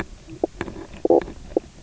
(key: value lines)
label: biophony, knock croak
recorder: SoundTrap 300